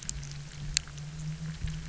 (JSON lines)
{"label": "anthrophony, boat engine", "recorder": "SoundTrap 300"}